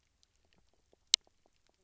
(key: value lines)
label: biophony
recorder: SoundTrap 300